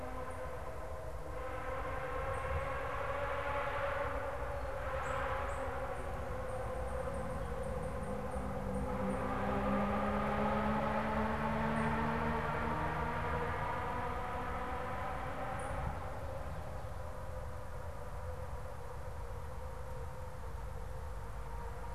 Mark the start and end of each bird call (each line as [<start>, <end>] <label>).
[0.00, 9.30] unidentified bird
[11.40, 15.90] unidentified bird